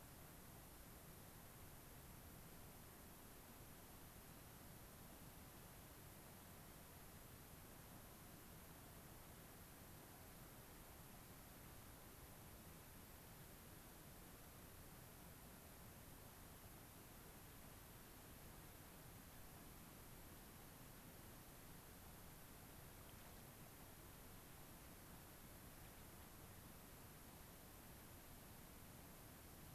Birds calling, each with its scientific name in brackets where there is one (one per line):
Gray-crowned Rosy-Finch (Leucosticte tephrocotis)